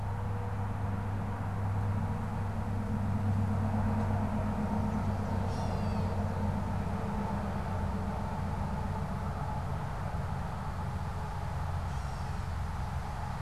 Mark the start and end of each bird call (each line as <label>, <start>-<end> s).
Gray Catbird (Dumetella carolinensis), 5.3-6.4 s
Gray Catbird (Dumetella carolinensis), 11.7-12.7 s